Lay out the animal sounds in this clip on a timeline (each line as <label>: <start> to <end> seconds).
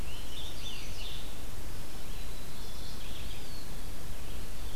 Scarlet Tanager (Piranga olivacea): 0.0 to 1.6 seconds
Red-eyed Vireo (Vireo olivaceus): 0.0 to 4.8 seconds
Chestnut-sided Warbler (Setophaga pensylvanica): 0.0 to 1.1 seconds
White-throated Sparrow (Zonotrichia albicollis): 1.6 to 3.4 seconds
Mourning Warbler (Geothlypis philadelphia): 2.3 to 3.4 seconds
Eastern Wood-Pewee (Contopus virens): 3.1 to 3.9 seconds